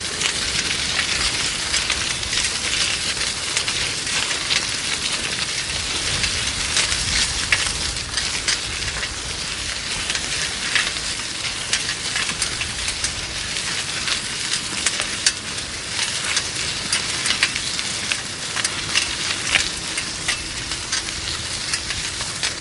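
0.0s A bicycle rattles on a wet road. 22.6s
0.0s Soft air flow. 22.6s

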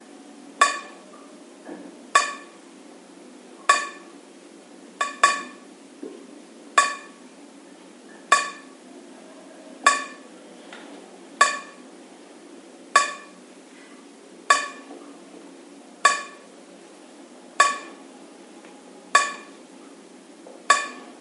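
0.6s Water drips repeatedly from a tap. 21.2s
1.6s Water drips once. 2.8s

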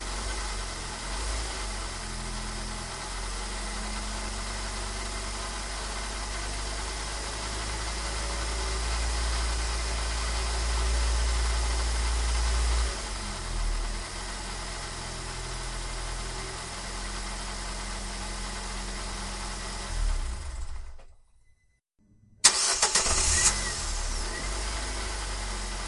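0.0s Car engine running. 20.8s
22.4s A car engine starts. 23.5s
23.7s Car engine running. 25.9s

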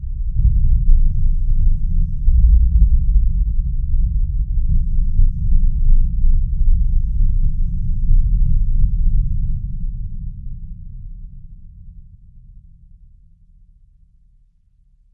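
0.0s Gentle rumbling thunder with soft lightning strikes creating an atmospheric weather ambiance. 2.2s
2.3s Deep, rolling thunder and distant lightning strikes create an intense weather atmosphere. 4.0s
4.0s Gentle rumbling thunder with soft lightning strikes creating an atmospheric weather ambiance. 8.0s
8.1s Deep, rolling thunder and distant lightning strikes create an intense weather atmosphere. 15.1s

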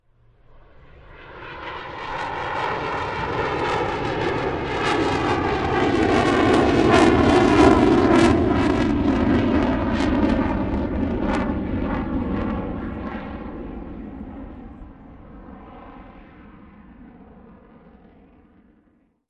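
0.7s A jet engine roars overhead and fades slowly with a Doppler shift as it passes by. 19.3s

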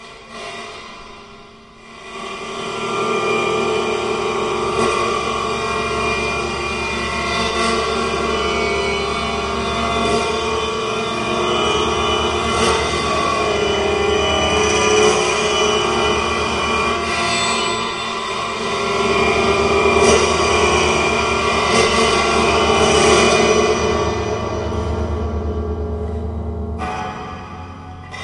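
0.3s Weird and scary sound. 28.2s

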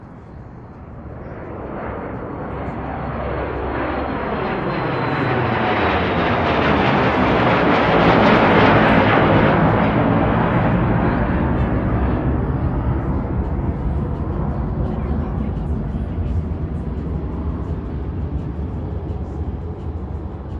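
0.1s An airplane is approaching. 10.3s
10.3s A distant airplane sound. 20.6s

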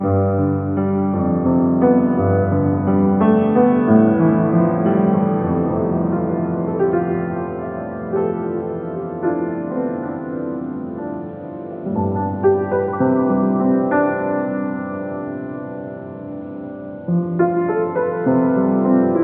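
0.0s A piano plays a gentle song with soft, delicate tones and a smooth, continuous melody. 19.2s

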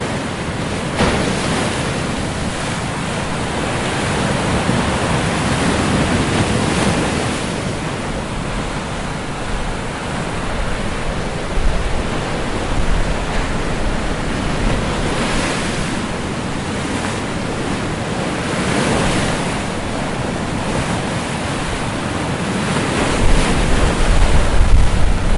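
0.0s Waves are crashing loudly and continuously onto the beach nearby. 25.4s

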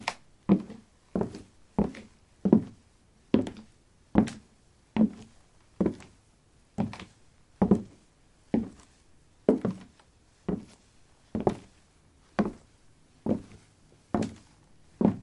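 0.0s A single click. 0.2s
0.0s Footsteps on a wooden floor. 15.2s

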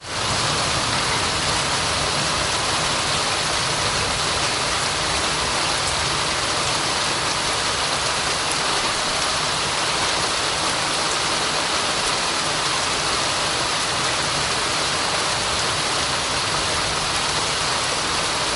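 0.0s Heavy rain is falling continuously. 18.6s

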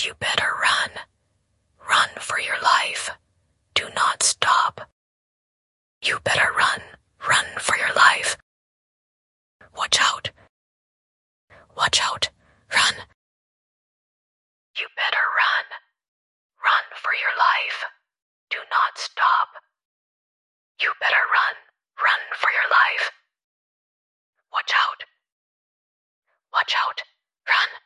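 0.0s A continuous whispering sound. 27.9s
0.0s A woman is whispering urgently, warning someone to run for their life and to watch out. 27.9s
0.0s She is speaking softly. 27.9s

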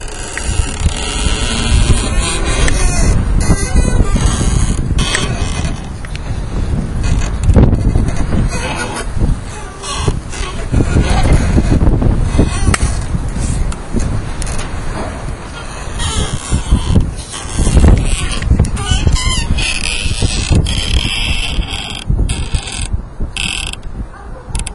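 0.0s Wind blowing outdoors. 24.7s
0.3s Wood squeaks repeatedly. 5.8s
7.3s Wood squeaks repeatedly. 14.9s
16.0s Wood squeaks repeatedly. 23.9s
24.5s A dog barks in the distance. 24.7s

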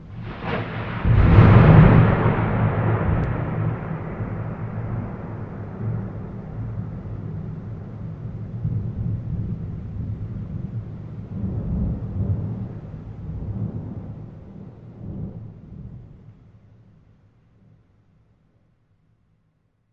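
0.0s A lightning strike is followed by loud thunder and continuous rain. 16.3s

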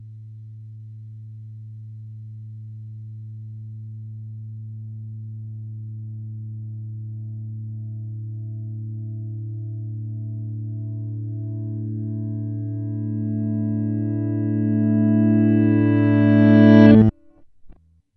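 0.0s A muffled guitar sound gradually increases in volume. 17.2s

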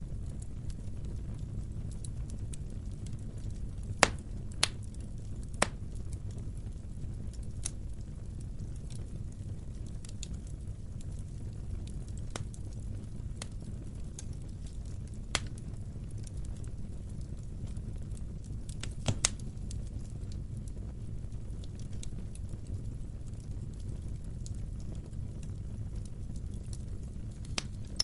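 0.0s A fireplace rumbling with crackling. 28.0s

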